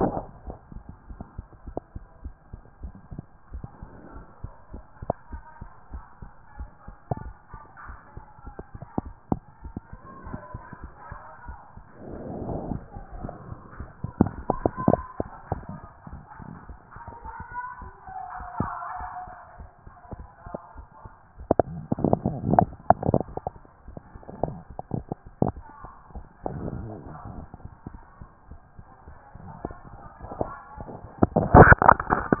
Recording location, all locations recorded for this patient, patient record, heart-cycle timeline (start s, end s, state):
mitral valve (MV)
aortic valve (AV)+pulmonary valve (PV)+tricuspid valve (TV)+mitral valve (MV)
#Age: Child
#Sex: Male
#Height: 142.0 cm
#Weight: 40.0 kg
#Pregnancy status: False
#Murmur: Absent
#Murmur locations: nan
#Most audible location: nan
#Systolic murmur timing: nan
#Systolic murmur shape: nan
#Systolic murmur grading: nan
#Systolic murmur pitch: nan
#Systolic murmur quality: nan
#Diastolic murmur timing: nan
#Diastolic murmur shape: nan
#Diastolic murmur grading: nan
#Diastolic murmur pitch: nan
#Diastolic murmur quality: nan
#Outcome: Normal
#Campaign: 2014 screening campaign
0.00	0.36	unannotated
0.36	0.46	diastole
0.46	0.56	S1
0.56	0.72	systole
0.72	0.82	S2
0.82	1.10	diastole
1.10	1.22	S1
1.22	1.36	systole
1.36	1.46	S2
1.46	1.66	diastole
1.66	1.78	S1
1.78	1.94	systole
1.94	2.04	S2
2.04	2.24	diastole
2.24	2.34	S1
2.34	2.52	systole
2.52	2.60	S2
2.60	2.82	diastole
2.82	2.94	S1
2.94	3.12	systole
3.12	3.22	S2
3.22	3.52	diastole
3.52	3.64	S1
3.64	3.82	systole
3.82	3.90	S2
3.90	4.14	diastole
4.14	4.26	S1
4.26	4.42	systole
4.42	4.52	S2
4.52	4.72	diastole
4.72	4.84	S1
4.84	5.02	systole
5.02	5.12	S2
5.12	5.32	diastole
5.32	5.42	S1
5.42	5.60	systole
5.60	5.70	S2
5.70	5.92	diastole
5.92	6.04	S1
6.04	6.20	systole
6.20	6.30	S2
6.30	6.58	diastole
6.58	6.70	S1
6.70	6.86	systole
6.86	6.96	S2
6.96	7.22	diastole
7.22	7.34	S1
7.34	7.52	systole
7.52	7.60	S2
7.60	7.88	diastole
7.88	7.98	S1
7.98	8.16	systole
8.16	8.24	S2
8.24	8.46	diastole
8.46	8.56	S1
8.56	8.74	systole
8.74	8.84	S2
8.84	32.40	unannotated